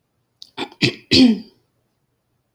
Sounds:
Throat clearing